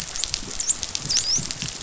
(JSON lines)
{"label": "biophony, dolphin", "recorder": "SoundTrap 500"}